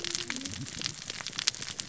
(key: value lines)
label: biophony, cascading saw
recorder: SoundTrap 600 or HydroMoth